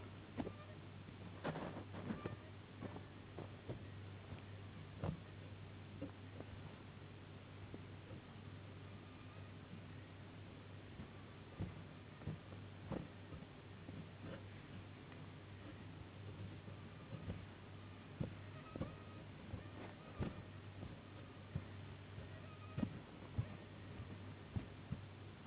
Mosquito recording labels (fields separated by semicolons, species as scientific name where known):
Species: Anopheles gambiae s.s.; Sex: female; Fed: unfed; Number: one; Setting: insect culture